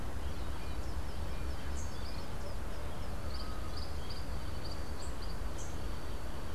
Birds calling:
Tropical Kingbird (Tyrannus melancholicus)

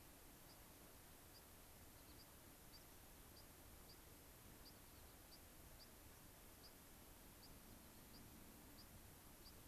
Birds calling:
White-crowned Sparrow (Zonotrichia leucophrys)
unidentified bird

